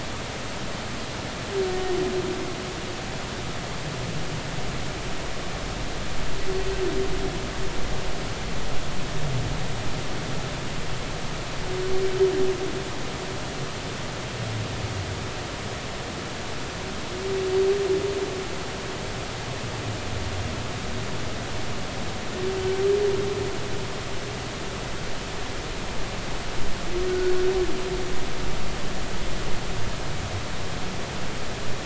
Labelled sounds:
27.1	27.3	humpback whale, 1.4 to 1.6 kHz

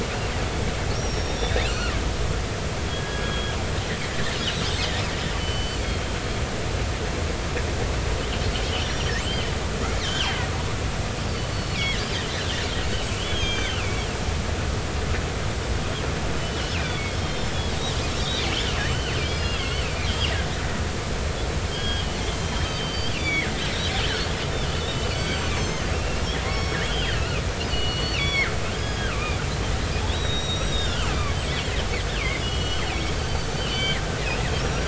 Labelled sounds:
0.9	1.9	killer whale, northern resident, 1.2 to 5.9 kHz
2.9	3.6	killer whale, northern resident, 1.6 to 3.4 kHz
4.0	4.4	killer whale, northern resident, 1.7 to 1.9 kHz
5.4	6.2	killer whale, northern resident, 2.7 to 4.7 kHz
8.8	10.4	killer whale, northern resident, 2.6 to 5.8 kHz
11.5	12.0	killer whale, northern resident, 1.8 to 4.5 kHz
13.2	14.1	killer whale, northern resident, 1.9 to 6.5 kHz
16.4	17.6	killer whale, northern resident, 2.1 to 5.5 kHz
18.2	20.3	killer whale, northern resident, 2.1 to 6.1 kHz
21.7	23.5	killer whale, northern resident, 1.6 to 4.9 kHz
24.6	26.8	killer whale, northern resident, 0.99 to 5.6 kHz
27.7	29.4	killer whale, northern resident, 0.99 to 6.0 kHz
30.1	34.8	killer whale, northern resident, 1.1 to 8.0 kHz

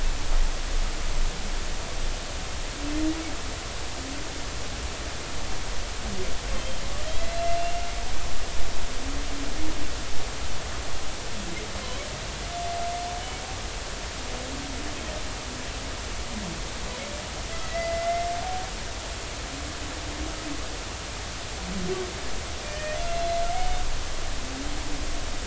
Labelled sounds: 6.6	6.8	humpback whale, 3.0 to 3.2 kHz
17.6	18.3	humpback whale, 1.9 to 2.2 kHz
22.6	23.0	humpback whale, 1.7 to 2.5 kHz

